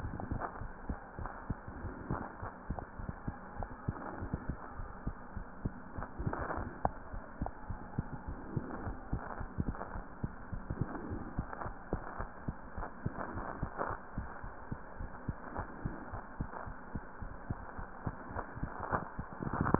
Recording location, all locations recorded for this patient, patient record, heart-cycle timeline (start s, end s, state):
mitral valve (MV)
aortic valve (AV)+pulmonary valve (PV)+tricuspid valve (TV)+mitral valve (MV)
#Age: Child
#Sex: Male
#Height: 84.0 cm
#Weight: 11.2 kg
#Pregnancy status: False
#Murmur: Absent
#Murmur locations: nan
#Most audible location: nan
#Systolic murmur timing: nan
#Systolic murmur shape: nan
#Systolic murmur grading: nan
#Systolic murmur pitch: nan
#Systolic murmur quality: nan
#Diastolic murmur timing: nan
#Diastolic murmur shape: nan
#Diastolic murmur grading: nan
#Diastolic murmur pitch: nan
#Diastolic murmur quality: nan
#Outcome: Normal
#Campaign: 2015 screening campaign
0.00	0.42	unannotated
0.42	0.60	diastole
0.60	0.70	S1
0.70	0.84	systole
0.84	0.98	S2
0.98	1.18	diastole
1.18	1.30	S1
1.30	1.48	systole
1.48	1.60	S2
1.60	1.80	diastole
1.80	1.94	S1
1.94	2.06	systole
2.06	2.20	S2
2.20	2.42	diastole
2.42	2.52	S1
2.52	2.66	systole
2.66	2.78	S2
2.78	2.96	diastole
2.96	3.08	S1
3.08	3.24	systole
3.24	3.36	S2
3.36	3.56	diastole
3.56	3.70	S1
3.70	3.84	systole
3.84	3.96	S2
3.96	4.18	diastole
4.18	4.32	S1
4.32	4.46	systole
4.46	4.60	S2
4.60	4.78	diastole
4.78	4.90	S1
4.90	5.04	systole
5.04	5.18	S2
5.18	5.34	diastole
5.34	5.46	S1
5.46	5.62	systole
5.62	5.76	S2
5.76	5.96	diastole
5.96	6.06	S1
6.06	6.18	systole
6.18	6.34	S2
6.34	6.54	diastole
6.54	6.70	S1
6.70	6.82	systole
6.82	6.94	S2
6.94	7.12	diastole
7.12	7.22	S1
7.22	7.40	systole
7.40	7.52	S2
7.52	7.68	diastole
7.68	7.80	S1
7.80	7.96	systole
7.96	8.08	S2
8.08	8.26	diastole
8.26	8.38	S1
8.38	8.52	systole
8.52	8.66	S2
8.66	8.82	diastole
8.82	8.98	S1
8.98	9.10	systole
9.10	9.22	S2
9.22	9.38	diastole
9.38	9.48	S1
9.48	9.60	systole
9.60	9.76	S2
9.76	9.92	diastole
9.92	10.04	S1
10.04	10.22	systole
10.22	10.32	S2
10.32	10.50	diastole
10.50	10.64	S1
10.64	10.78	systole
10.78	10.88	S2
10.88	11.04	diastole
11.04	11.22	S1
11.22	11.36	systole
11.36	11.48	S2
11.48	11.64	diastole
11.64	11.74	S1
11.74	11.92	systole
11.92	12.06	S2
12.06	12.20	diastole
12.20	12.28	S1
12.28	12.44	systole
12.44	12.58	S2
12.58	12.78	diastole
12.78	12.86	S1
12.86	13.04	systole
13.04	13.16	S2
13.16	13.34	diastole
13.34	13.48	S1
13.48	13.60	systole
13.60	13.72	S2
13.72	13.88	diastole
13.88	13.96	S1
13.96	14.16	systole
14.16	14.30	S2
14.30	14.44	diastole
14.44	14.52	S1
14.52	14.68	systole
14.68	14.80	S2
14.80	14.98	diastole
14.98	15.10	S1
15.10	15.24	systole
15.24	15.38	S2
15.38	15.56	diastole
15.56	15.68	S1
15.68	15.84	systole
15.84	15.98	S2
15.98	16.12	diastole
16.12	16.22	S1
16.22	16.38	systole
16.38	16.50	S2
16.50	16.66	diastole
16.66	16.76	S1
16.76	16.94	systole
16.94	17.04	S2
17.04	17.22	diastole
17.22	17.36	S1
17.36	17.46	systole
17.46	17.62	S2
17.62	17.80	diastole
17.80	17.88	S1
17.88	18.04	systole
18.04	18.16	S2
18.16	18.34	diastole
18.34	18.46	S1
18.46	18.58	systole
18.58	18.72	S2
18.72	18.90	diastole
18.90	19.79	unannotated